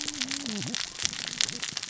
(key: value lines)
label: biophony, cascading saw
recorder: SoundTrap 600 or HydroMoth